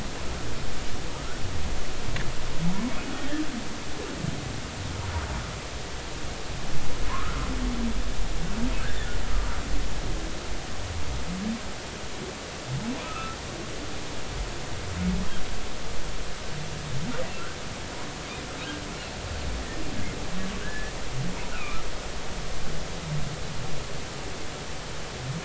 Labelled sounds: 7.1	7.5	humpback whale, 0.93 to 1.5 kHz
9.3	9.6	humpback whale, 1.2 to 1.4 kHz
13.0	13.4	humpback whale, 1.2 to 1.4 kHz
20.6	20.9	humpback whale, 1.4 to 1.8 kHz
21.5	22.8	humpback whale, 1.1 to 2.9 kHz

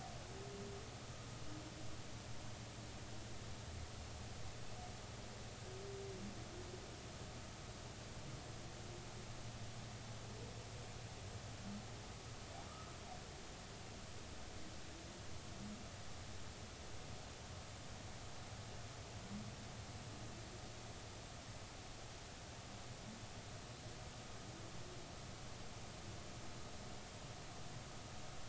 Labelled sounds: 12.7	12.9	humpback whale, 1.2 to 1.3 kHz

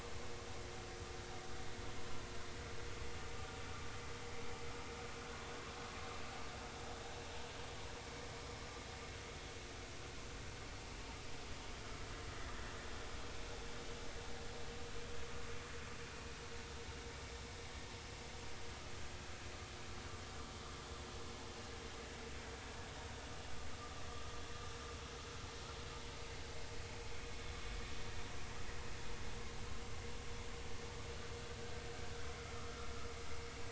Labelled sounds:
32.5	32.9	vessel noise, 1.0 to 1.4 kHz

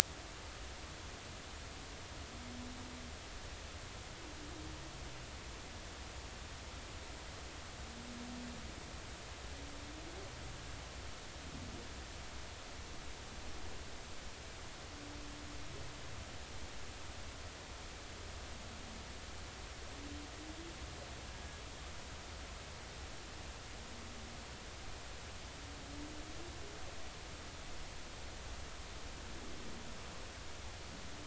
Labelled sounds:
21.3	21.6	humpback whale, 1.6 to 1.8 kHz

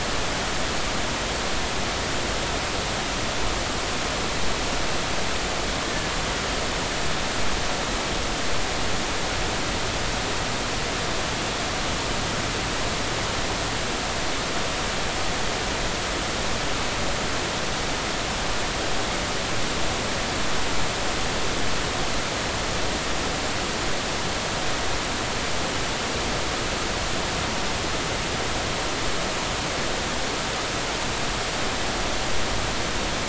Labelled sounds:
5.8	6.1	killer whale, Bigg's (transient), 1.7 to 1.9 kHz

